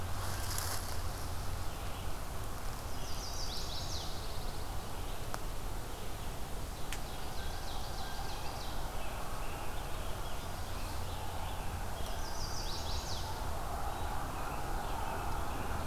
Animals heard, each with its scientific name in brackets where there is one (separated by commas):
Chestnut-sided Warbler (Setophaga pensylvanica), Ovenbird (Seiurus aurocapilla), Pine Warbler (Setophaga pinus), American Robin (Turdus migratorius)